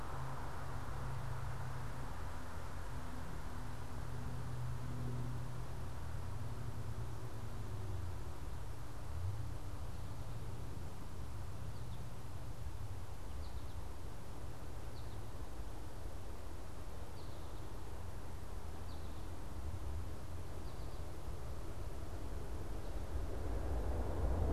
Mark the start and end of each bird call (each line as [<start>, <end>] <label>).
[10.40, 15.40] American Goldfinch (Spinus tristis)
[16.90, 21.10] American Goldfinch (Spinus tristis)